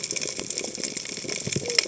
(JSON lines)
{"label": "biophony, cascading saw", "recorder": "HydroMoth"}